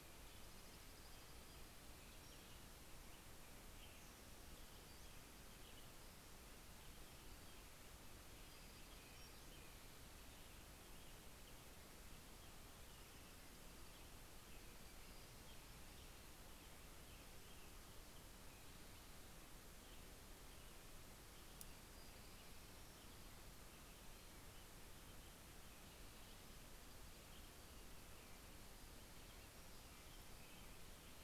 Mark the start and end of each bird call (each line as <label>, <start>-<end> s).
American Robin (Turdus migratorius), 0.0-31.2 s
Dark-eyed Junco (Junco hyemalis), 0.0-1.3 s
Pacific-slope Flycatcher (Empidonax difficilis), 0.8-2.8 s
Pacific-slope Flycatcher (Empidonax difficilis), 8.2-9.6 s
Dark-eyed Junco (Junco hyemalis), 12.8-14.2 s
Black-throated Gray Warbler (Setophaga nigrescens), 14.6-16.5 s
Black-throated Gray Warbler (Setophaga nigrescens), 21.7-24.0 s
Black-throated Gray Warbler (Setophaga nigrescens), 28.4-30.7 s